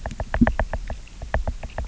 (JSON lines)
{"label": "biophony, knock", "recorder": "SoundTrap 300"}